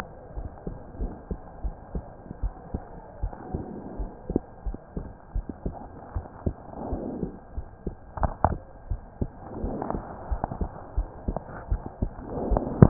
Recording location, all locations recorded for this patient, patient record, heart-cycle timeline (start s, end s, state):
pulmonary valve (PV)
aortic valve (AV)+pulmonary valve (PV)+tricuspid valve (TV)+mitral valve (MV)
#Age: Child
#Sex: Female
#Height: 108.0 cm
#Weight: 17.2 kg
#Pregnancy status: False
#Murmur: Absent
#Murmur locations: nan
#Most audible location: nan
#Systolic murmur timing: nan
#Systolic murmur shape: nan
#Systolic murmur grading: nan
#Systolic murmur pitch: nan
#Systolic murmur quality: nan
#Diastolic murmur timing: nan
#Diastolic murmur shape: nan
#Diastolic murmur grading: nan
#Diastolic murmur pitch: nan
#Diastolic murmur quality: nan
#Outcome: Abnormal
#Campaign: 2015 screening campaign
0.00	0.34	unannotated
0.34	0.48	S1
0.48	0.64	systole
0.64	0.74	S2
0.74	0.97	diastole
0.97	1.12	S1
1.12	1.28	systole
1.28	1.40	S2
1.40	1.60	diastole
1.60	1.76	S1
1.76	1.91	systole
1.91	2.04	S2
2.04	2.40	diastole
2.40	2.52	S1
2.52	2.71	systole
2.71	2.82	S2
2.82	3.18	diastole
3.18	3.34	S1
3.34	3.51	systole
3.51	3.64	S2
3.64	3.96	diastole
3.96	4.10	S1
4.10	4.26	systole
4.26	4.42	S2
4.42	4.63	diastole
4.63	4.76	S1
4.76	4.94	systole
4.94	5.06	S2
5.06	5.32	diastole
5.32	5.46	S1
5.46	5.62	systole
5.62	5.76	S2
5.76	6.12	diastole
6.12	6.26	S1
6.26	6.42	systole
6.42	6.56	S2
6.56	6.88	diastole
6.88	7.02	S1
7.02	7.18	systole
7.18	7.32	S2
7.32	7.53	diastole
7.53	7.66	S1
7.66	7.83	systole
7.83	7.94	S2
7.94	8.16	diastole
8.16	8.32	S1
8.32	8.46	systole
8.46	8.58	S2
8.58	8.88	diastole
8.88	9.00	S1
9.00	9.18	systole
9.18	9.30	S2
9.30	9.62	diastole
9.62	9.72	S1
9.72	9.91	systole
9.91	10.04	S2
10.04	10.28	diastole
10.28	10.42	S1
10.42	10.57	systole
10.57	10.70	S2
10.70	10.93	diastole
10.93	11.08	S1
11.08	11.25	systole
11.25	11.38	S2
11.38	11.68	diastole
11.68	11.82	S1
11.82	11.98	systole
11.98	12.12	S2
12.12	12.90	unannotated